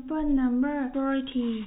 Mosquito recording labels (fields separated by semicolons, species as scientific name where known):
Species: no mosquito; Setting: cup